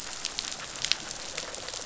{"label": "biophony", "recorder": "SoundTrap 500"}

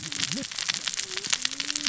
{"label": "biophony, cascading saw", "recorder": "SoundTrap 600 or HydroMoth"}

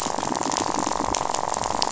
{"label": "biophony, rattle", "recorder": "SoundTrap 500"}
{"label": "biophony", "recorder": "SoundTrap 500"}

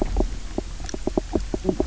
{"label": "biophony, knock croak", "recorder": "SoundTrap 300"}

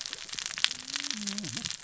{"label": "biophony, cascading saw", "recorder": "SoundTrap 600 or HydroMoth"}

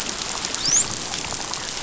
{"label": "biophony, dolphin", "recorder": "SoundTrap 500"}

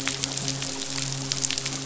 {"label": "biophony, midshipman", "recorder": "SoundTrap 500"}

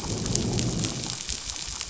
{"label": "biophony, growl", "recorder": "SoundTrap 500"}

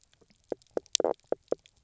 {"label": "biophony, knock croak", "recorder": "SoundTrap 300"}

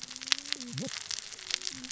{"label": "biophony, cascading saw", "recorder": "SoundTrap 600 or HydroMoth"}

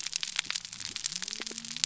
{"label": "biophony", "recorder": "SoundTrap 300"}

